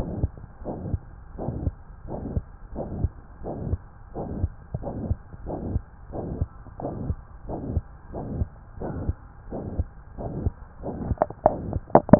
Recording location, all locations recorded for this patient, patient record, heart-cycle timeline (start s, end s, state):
tricuspid valve (TV)
aortic valve (AV)+pulmonary valve (PV)+tricuspid valve (TV)+mitral valve (MV)
#Age: Child
#Sex: Male
#Height: 131.0 cm
#Weight: 32.5 kg
#Pregnancy status: False
#Murmur: Present
#Murmur locations: aortic valve (AV)+mitral valve (MV)+pulmonary valve (PV)+tricuspid valve (TV)
#Most audible location: pulmonary valve (PV)
#Systolic murmur timing: Holosystolic
#Systolic murmur shape: Plateau
#Systolic murmur grading: III/VI or higher
#Systolic murmur pitch: High
#Systolic murmur quality: Harsh
#Diastolic murmur timing: nan
#Diastolic murmur shape: nan
#Diastolic murmur grading: nan
#Diastolic murmur pitch: nan
#Diastolic murmur quality: nan
#Outcome: Abnormal
#Campaign: 2015 screening campaign
0.00	0.58	unannotated
0.58	0.75	S1
0.75	0.86	systole
0.86	1.02	S2
1.02	1.33	diastole
1.33	1.50	S1
1.50	1.64	systole
1.64	1.76	S2
1.76	2.07	diastole
2.07	2.22	S1
2.22	2.30	systole
2.30	2.46	S2
2.46	2.71	diastole
2.71	2.90	S1
2.90	2.98	systole
2.98	3.14	S2
3.14	3.41	diastole
3.41	3.58	S1
3.58	3.65	systole
3.65	3.78	S2
3.78	4.12	diastole
4.12	4.30	S1
4.30	4.38	systole
4.38	4.52	S2
4.52	4.80	diastole
4.80	4.95	S1
4.95	5.08	systole
5.08	5.20	S2
5.20	5.42	diastole
5.42	5.60	S1
5.60	5.66	systole
5.66	5.82	S2
5.82	6.11	diastole
6.11	6.26	S1
6.26	6.36	systole
6.36	6.48	S2
6.48	6.77	diastole
6.77	6.91	S1
6.91	7.00	systole
7.00	7.16	S2
7.16	7.45	diastole
7.45	7.64	S1
7.64	7.70	systole
7.70	7.86	S2
7.86	8.11	diastole
8.11	8.32	S1
8.32	8.36	systole
8.36	8.52	S2
8.52	8.77	diastole
8.77	8.95	S1
8.95	9.06	systole
9.06	9.20	S2
9.20	9.48	diastole
9.48	9.62	S1
9.62	9.74	systole
9.74	9.86	S2
9.86	10.14	diastole
10.14	10.32	S1
10.32	10.36	systole
10.36	10.52	S2
10.52	12.19	unannotated